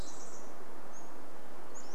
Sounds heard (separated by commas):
Pacific-slope Flycatcher song, Pacific Wren song, Varied Thrush song